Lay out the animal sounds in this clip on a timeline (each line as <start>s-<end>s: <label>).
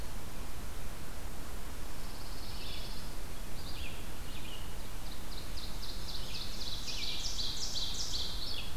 1.7s-3.2s: Pine Warbler (Setophaga pinus)
2.4s-8.8s: Red-eyed Vireo (Vireo olivaceus)
4.7s-8.8s: Ovenbird (Seiurus aurocapilla)